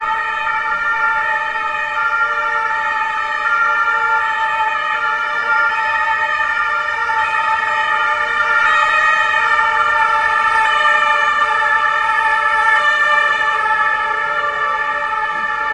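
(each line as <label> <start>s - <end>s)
A police siren passes by on a busy street. 0.0s - 15.7s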